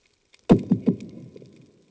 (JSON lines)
{"label": "anthrophony, bomb", "recorder": "HydroMoth"}